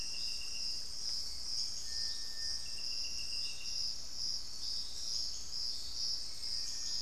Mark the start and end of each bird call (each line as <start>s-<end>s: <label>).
0.0s-7.0s: Little Tinamou (Crypturellus soui)
6.3s-7.0s: Hauxwell's Thrush (Turdus hauxwelli)